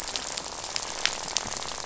{"label": "biophony, rattle", "recorder": "SoundTrap 500"}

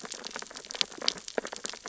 {"label": "biophony, sea urchins (Echinidae)", "recorder": "SoundTrap 600 or HydroMoth"}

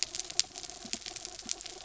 {"label": "anthrophony, mechanical", "recorder": "SoundTrap 300"}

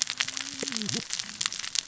{"label": "biophony, cascading saw", "recorder": "SoundTrap 600 or HydroMoth"}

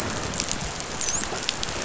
{"label": "biophony, dolphin", "recorder": "SoundTrap 500"}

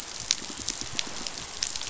{"label": "biophony, pulse", "recorder": "SoundTrap 500"}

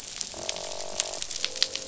{"label": "biophony, croak", "recorder": "SoundTrap 500"}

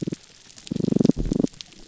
{"label": "biophony, damselfish", "recorder": "SoundTrap 300"}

